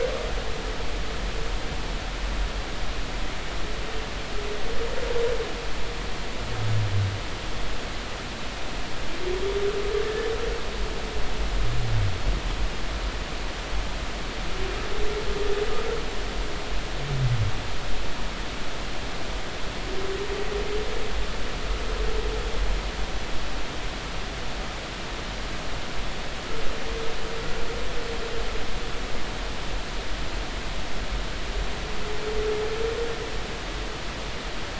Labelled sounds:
10.0	10.3	humpback whale, 1.7 to 1.8 kHz

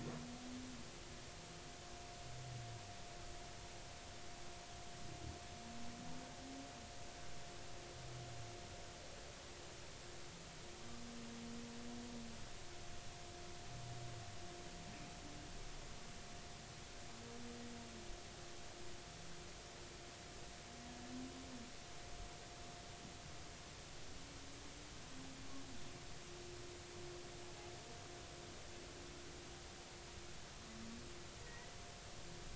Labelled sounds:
31.4	31.7	humpback whale, 1.8 to 2.0 kHz

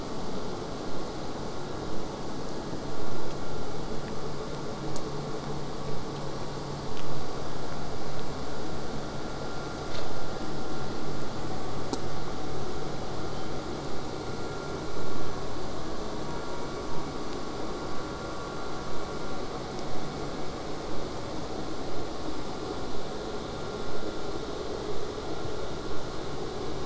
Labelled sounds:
11.9	16.9	vessel noise, 0 to 8.0 kHz
21.1	26.3	killer whale, southern resident, J pod, 7.4 to 8.0 kHz

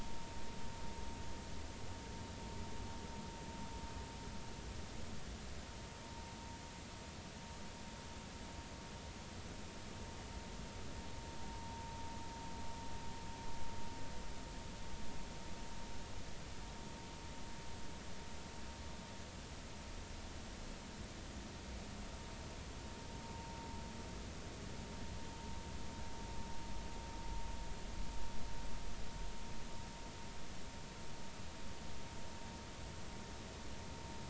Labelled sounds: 23.2	23.6	vessel noise, 0.86 to 0.99 kHz

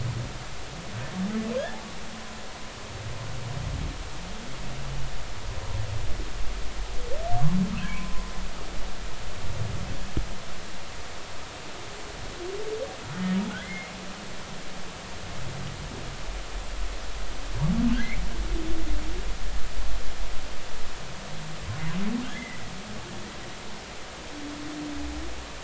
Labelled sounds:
7.8	8.3	humpback whale, 0.96 to 1.1 kHz
13.6	13.9	humpback whale, 1.9 to 2.2 kHz
18.0	18.2	humpback whale, 1.9 to 2.4 kHz
22.2	22.6	humpback whale, 1.9 to 3.5 kHz

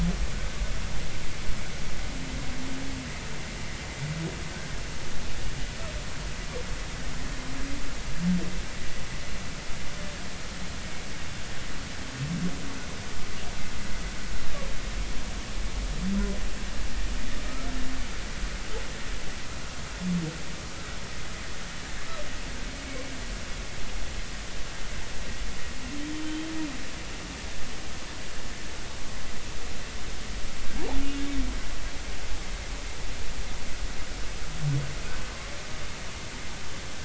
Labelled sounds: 17.5	17.8	humpback whale, 1.2 to 1.4 kHz
26.2	26.5	humpback whale, 3.0 to 3.3 kHz

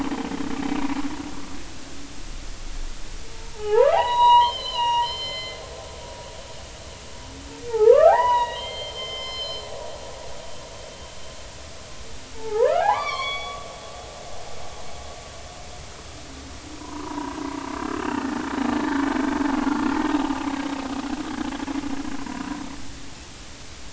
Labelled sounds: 3.5	5.6	humpback whale, 0.80 to 5.8 kHz
7.7	9.7	humpback whale, 0.80 to 5.3 kHz
12.3	13.7	humpback whale, 0.80 to 8.0 kHz
16.8	17.4	humpback whale, 0.86 to 1.3 kHz
17.7	18.4	humpback whale, 1.2 to 2.0 kHz

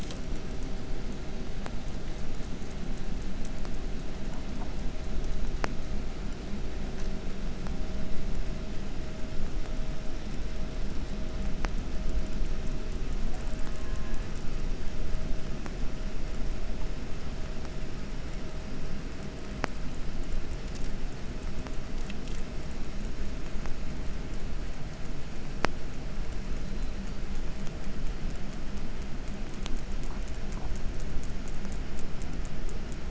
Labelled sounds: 13.2	14.4	killer whale, southern resident, J pod, call S04, 0.50 to 2.6 kHz
26.5	27.3	killer whale, 3.6 to 5.0 kHz

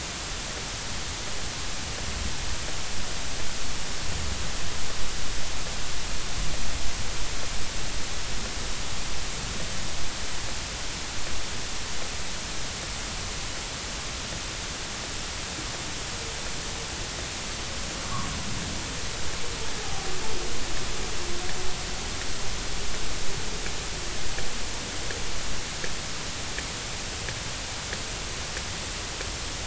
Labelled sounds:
19.8	20.1	humpback whale, 0.80 to 0.86 kHz

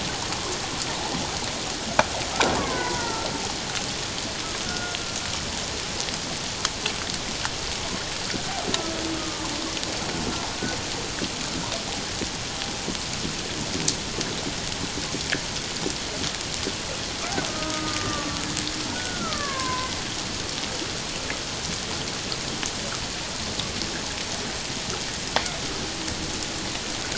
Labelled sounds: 2.6	3.3	killer whale, Bigg's (transient), 0.88 to 1.6 kHz
4.6	5.0	killer whale, Bigg's (transient), 1.4 to 1.5 kHz
9.1	9.5	killer whale, Bigg's (transient), 0.84 to 1.3 kHz
17.5	19.9	killer whale, Bigg's (transient), 0.97 to 1.8 kHz

